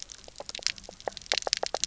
{"label": "biophony, knock", "recorder": "SoundTrap 300"}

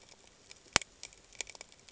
{"label": "ambient", "recorder": "HydroMoth"}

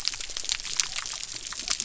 {"label": "biophony", "recorder": "SoundTrap 300"}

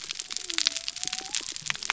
{"label": "biophony", "recorder": "SoundTrap 300"}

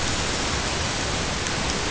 {"label": "ambient", "recorder": "HydroMoth"}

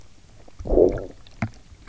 {"label": "biophony, low growl", "recorder": "SoundTrap 300"}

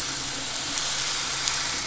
{"label": "anthrophony, boat engine", "recorder": "SoundTrap 500"}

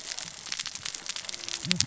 {"label": "biophony, cascading saw", "recorder": "SoundTrap 600 or HydroMoth"}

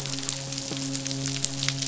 {"label": "biophony, midshipman", "recorder": "SoundTrap 500"}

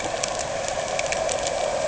{"label": "anthrophony, boat engine", "recorder": "HydroMoth"}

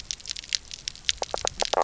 {"label": "biophony, knock croak", "recorder": "SoundTrap 300"}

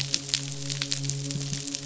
{"label": "biophony, midshipman", "recorder": "SoundTrap 500"}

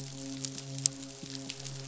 {"label": "biophony, midshipman", "recorder": "SoundTrap 500"}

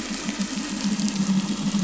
{"label": "anthrophony, boat engine", "recorder": "SoundTrap 500"}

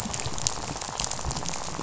{"label": "biophony, rattle", "recorder": "SoundTrap 500"}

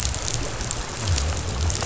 {"label": "biophony", "recorder": "SoundTrap 500"}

